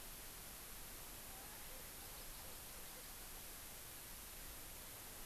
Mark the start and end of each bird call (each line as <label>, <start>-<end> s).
Erckel's Francolin (Pternistis erckelii), 1.2-3.0 s